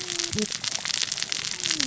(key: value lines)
label: biophony, cascading saw
recorder: SoundTrap 600 or HydroMoth